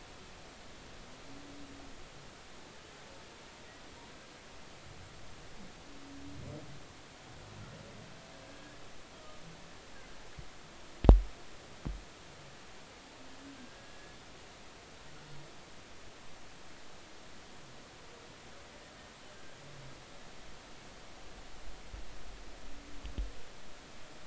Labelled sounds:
8.4	8.8	humpback whale, 1.6 to 1.7 kHz

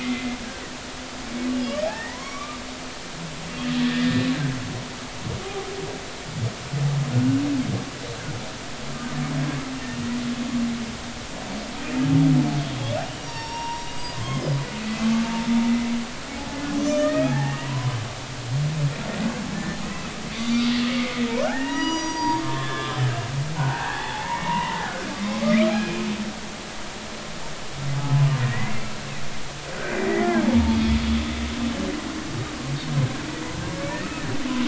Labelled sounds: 1.5	2.6	humpback whale, 0.83 to 2.9 kHz
3.8	4.3	humpback whale, 1.6 to 1.9 kHz
7.1	7.4	humpback whale, 1.4 to 1.6 kHz
13.0	14.5	humpback whale, 0.86 to 5.8 kHz
15.6	15.9	humpback whale, 2.0 to 2.1 kHz
16.5	18.0	humpback whale, 0.80 to 2.9 kHz
19.5	23.0	humpback whale, 0.80 to 6.8 kHz
23.5	24.9	humpback whale, 0.80 to 3.5 kHz
25.4	26.0	humpback whale, 1.2 to 2.5 kHz
28.4	31.0	humpback whale, 1.4 to 3.4 kHz

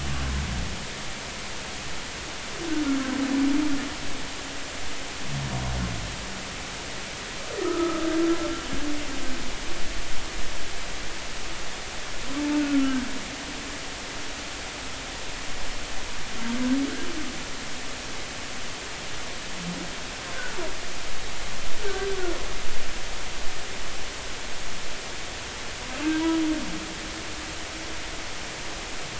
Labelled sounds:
7.6	8.0	humpback whale, 1.2 to 1.4 kHz
12.6	13.0	humpback whale, 1.3 to 1.5 kHz
21.8	22.1	humpback whale, 1.5 to 1.6 kHz

